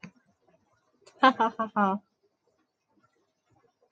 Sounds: Laughter